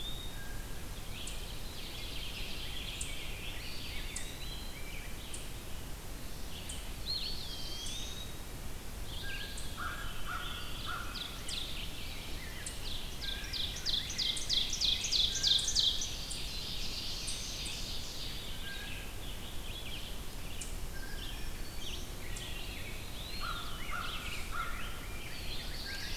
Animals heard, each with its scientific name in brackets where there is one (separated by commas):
Veery (Catharus fuscescens), Red-eyed Vireo (Vireo olivaceus), Eastern Wood-Pewee (Contopus virens), American Crow (Corvus brachyrhynchos), Rose-breasted Grosbeak (Pheucticus ludovicianus), Black-throated Blue Warbler (Setophaga caerulescens), Ovenbird (Seiurus aurocapilla), Blue Jay (Cyanocitta cristata), Black-throated Green Warbler (Setophaga virens)